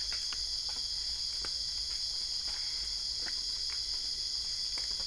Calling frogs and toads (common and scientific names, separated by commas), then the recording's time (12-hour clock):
Boana albopunctata
12:30am